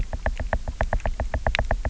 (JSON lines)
{"label": "biophony, knock", "recorder": "SoundTrap 300"}